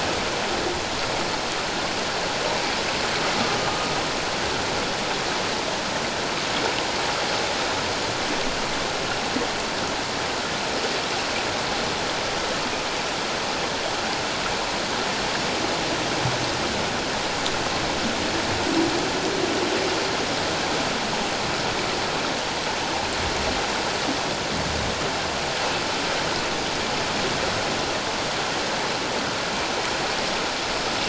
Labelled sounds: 3.6	3.9	humpback whale, 1.2 to 1.3 kHz

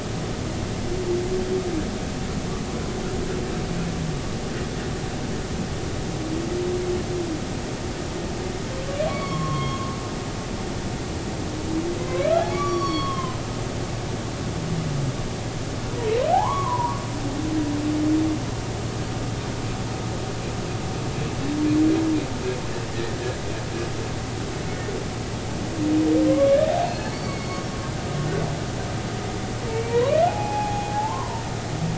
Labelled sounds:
9.1	9.9	humpback whale, 0.96 to 3.4 kHz
12.0	12.2	humpback whale, 0.99 to 1.1 kHz
12.5	13.4	humpback whale, 0.96 to 5.8 kHz
16.3	17.0	humpback whale, 0.80 to 1.2 kHz
26.3	27.6	humpback whale, 1.0 to 4.6 kHz
29.7	31.4	humpback whale, 0.80 to 2.6 kHz

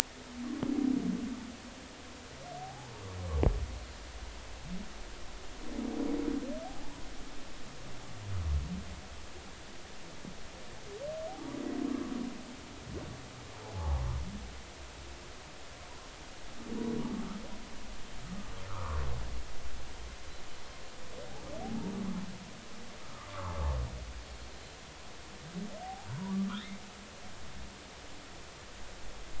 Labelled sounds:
2.6	2.9	humpback whale, 0.80 to 0.99 kHz
6.6	7.0	humpback whale, 0.80 to 1.1 kHz
11.3	11.6	humpback whale, 0.80 to 1.0 kHz
13.6	14.0	humpback whale, 0.80 to 0.99 kHz
18.7	19.0	humpback whale, 0.90 to 1.5 kHz
23.0	23.3	humpback whale, 1.0 to 1.3 kHz
24.5	24.8	humpback whale, 4.0 to 4.1 kHz
25.8	26.3	humpback whale, 0.80 to 1.0 kHz

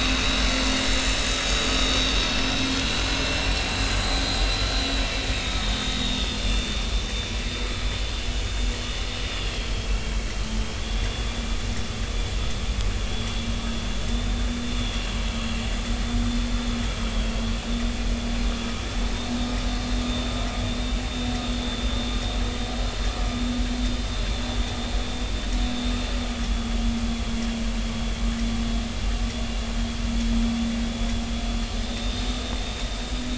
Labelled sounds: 0.2	0.5	vessel noise, 3.9 to 4.2 kHz
1.4	1.7	vessel noise, 6.5 to 6.7 kHz
2.6	4.0	vessel noise, 3.9 to 4.4 kHz
5.3	6.8	vessel noise, 3.3 to 3.8 kHz
9.5	9.7	vessel noise, 3.0 to 3.4 kHz
10.8	11.3	vessel noise, 3.3 to 3.6 kHz
13.1	13.3	vessel noise, 3.2 to 3.5 kHz
14.1	14.5	vessel noise, 3.5 to 3.7 kHz
14.8	15.0	vessel noise, 3.2 to 3.5 kHz
20.1	20.3	vessel noise, 3.5 to 3.7 kHz
26.4	26.8	vessel noise, 3.3 to 3.5 kHz
31.7	32.7	vessel noise, 3.5 to 3.8 kHz

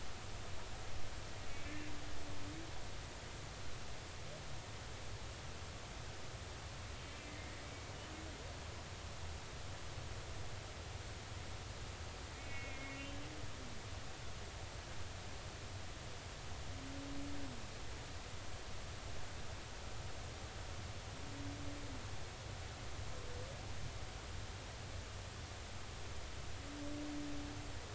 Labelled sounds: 7.3	7.6	humpback whale, 2.0 to 2.2 kHz
12.4	13.2	humpback whale, 2.1 to 2.8 kHz

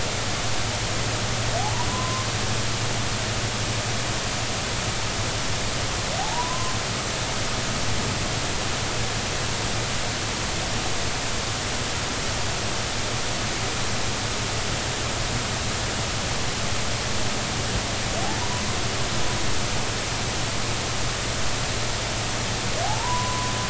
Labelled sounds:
1.6	2.3	humpback whale, 0.80 to 1.1 kHz
6.2	6.7	humpback whale, 0.80 to 1.1 kHz
18.2	18.6	humpback whale, 0.80 to 1.0 kHz
22.8	23.5	humpback whale, 0.80 to 1.1 kHz

